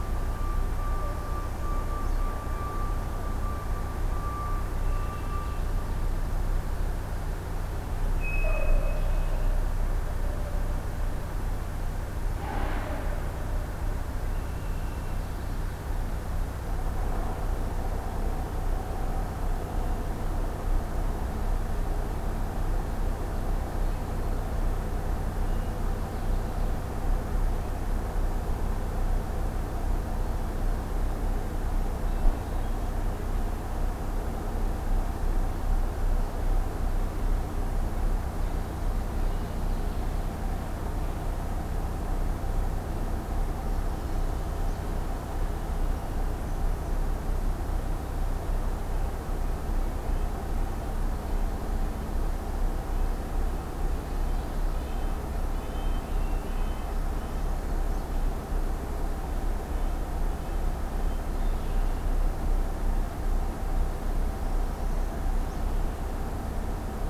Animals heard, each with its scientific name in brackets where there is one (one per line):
Red-winged Blackbird (Agelaius phoeniceus)
unidentified call
Hermit Thrush (Catharus guttatus)
Northern Parula (Setophaga americana)
Red-breasted Nuthatch (Sitta canadensis)